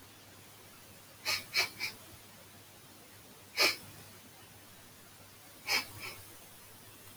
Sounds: Sniff